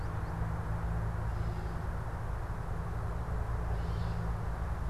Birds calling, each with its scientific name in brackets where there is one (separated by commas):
Gray Catbird (Dumetella carolinensis), American Goldfinch (Spinus tristis)